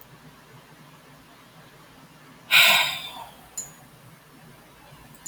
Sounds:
Sigh